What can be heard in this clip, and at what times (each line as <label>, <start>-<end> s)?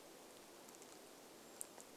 Brown Creeper call, 0-2 s
rain, 0-2 s